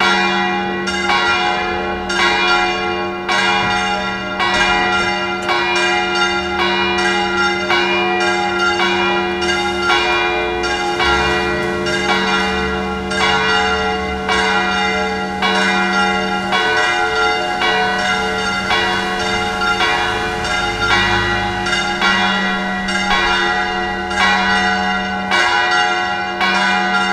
Do the bells ring repetitively?
yes